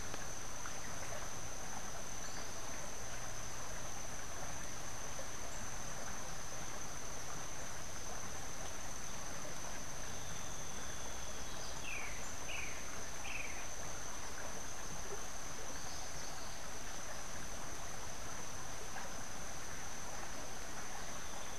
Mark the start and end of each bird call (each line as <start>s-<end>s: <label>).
11.7s-13.7s: Boat-billed Flycatcher (Megarynchus pitangua)